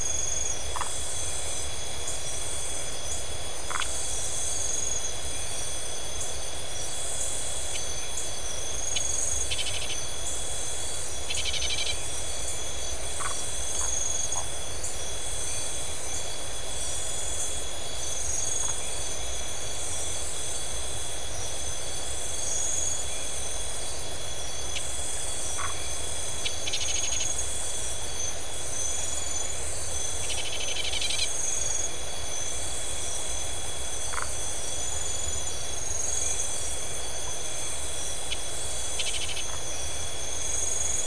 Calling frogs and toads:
Phyllomedusa distincta, Scinax rizibilis
Atlantic Forest, Brazil, 12:15am

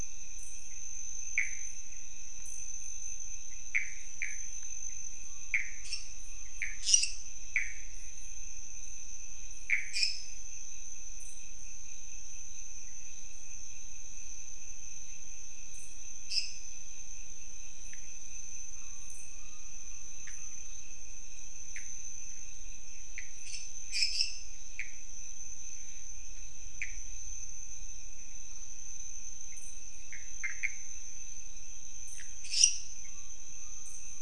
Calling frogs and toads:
Pithecopus azureus, lesser tree frog
Cerrado, Brazil, 1:30am

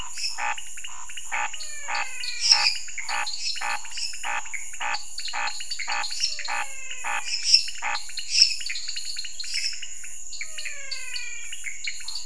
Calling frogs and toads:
Scinax fuscovarius, lesser tree frog, dwarf tree frog, pointedbelly frog, menwig frog, Pithecopus azureus
Cerrado, Brazil, 9:30pm

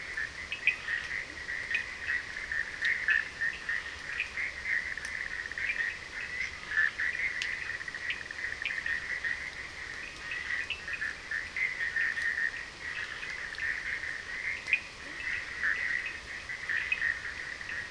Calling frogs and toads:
Bischoff's tree frog, Cochran's lime tree frog
Atlantic Forest, Brazil, 2:00am

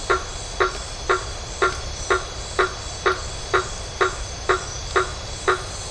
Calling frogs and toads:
blacksmith tree frog
Atlantic Forest, Brazil, 9:30pm

